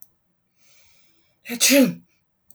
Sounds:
Sneeze